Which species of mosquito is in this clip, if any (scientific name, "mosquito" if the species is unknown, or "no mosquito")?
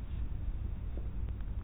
no mosquito